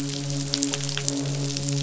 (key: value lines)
label: biophony, midshipman
recorder: SoundTrap 500

label: biophony, croak
recorder: SoundTrap 500